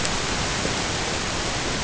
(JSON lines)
{"label": "ambient", "recorder": "HydroMoth"}